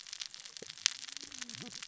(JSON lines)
{"label": "biophony, cascading saw", "recorder": "SoundTrap 600 or HydroMoth"}